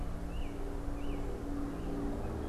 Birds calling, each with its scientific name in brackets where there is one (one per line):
American Robin (Turdus migratorius)